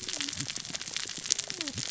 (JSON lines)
{"label": "biophony, cascading saw", "recorder": "SoundTrap 600 or HydroMoth"}